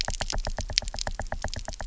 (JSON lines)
{"label": "biophony, knock", "recorder": "SoundTrap 300"}